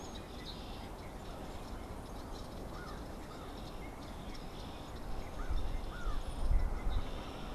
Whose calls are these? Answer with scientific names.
Agelaius phoeniceus, Corvus brachyrhynchos, Molothrus ater